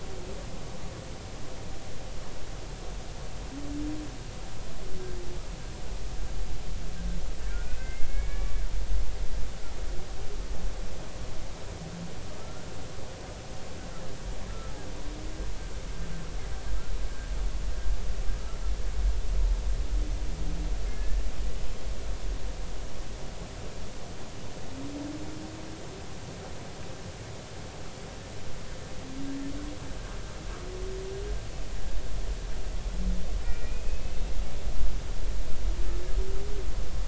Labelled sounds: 7.5	8.6	humpback whale, 1.0 to 2.6 kHz
12.3	12.6	humpback whale, 1.2 to 1.4 kHz
14.5	14.8	humpback whale, 1.3 to 1.4 kHz
18.3	18.6	humpback whale, 1.2 to 1.4 kHz
20.9	21.2	humpback whale, 1.7 to 1.8 kHz
33.4	34.1	humpback whale, 2.3 to 2.6 kHz

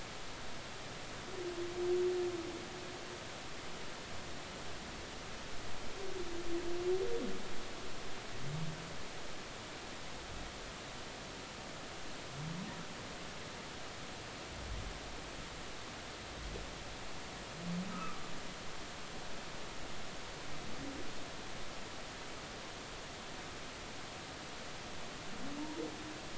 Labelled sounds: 17.9	18.2	humpback whale, 1.1 to 1.4 kHz

